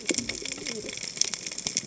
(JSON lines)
{"label": "biophony, cascading saw", "recorder": "HydroMoth"}